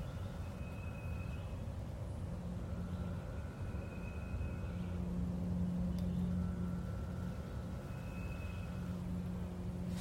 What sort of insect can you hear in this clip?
cicada